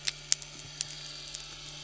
{"label": "anthrophony, boat engine", "recorder": "SoundTrap 300"}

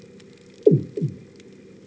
{"label": "anthrophony, bomb", "recorder": "HydroMoth"}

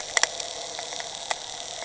{"label": "anthrophony, boat engine", "recorder": "HydroMoth"}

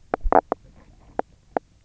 {"label": "biophony, knock croak", "recorder": "SoundTrap 300"}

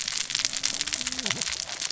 {"label": "biophony, cascading saw", "recorder": "SoundTrap 600 or HydroMoth"}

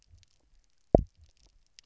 {"label": "biophony, double pulse", "recorder": "SoundTrap 300"}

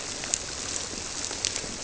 {"label": "biophony", "recorder": "SoundTrap 300"}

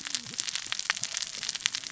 {"label": "biophony, cascading saw", "recorder": "SoundTrap 600 or HydroMoth"}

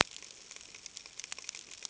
{"label": "ambient", "recorder": "HydroMoth"}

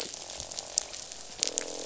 {"label": "biophony, croak", "recorder": "SoundTrap 500"}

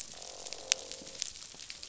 {"label": "biophony, croak", "recorder": "SoundTrap 500"}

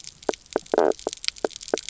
{"label": "biophony, knock croak", "recorder": "SoundTrap 300"}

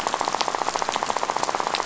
{"label": "biophony, rattle", "recorder": "SoundTrap 500"}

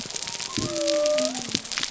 {"label": "biophony", "recorder": "SoundTrap 300"}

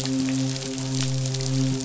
{"label": "biophony, midshipman", "recorder": "SoundTrap 500"}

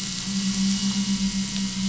{"label": "anthrophony, boat engine", "recorder": "SoundTrap 500"}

